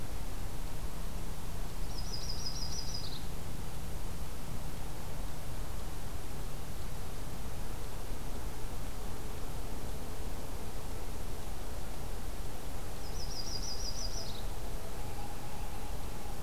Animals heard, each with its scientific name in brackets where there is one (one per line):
Common Loon (Gavia immer)
Yellow-rumped Warbler (Setophaga coronata)